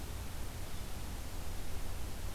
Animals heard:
forest ambience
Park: Marsh-Billings-Rockefeller National Historical Park